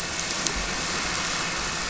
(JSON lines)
{"label": "anthrophony, boat engine", "recorder": "SoundTrap 300"}